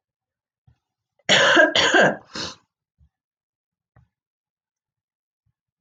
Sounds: Cough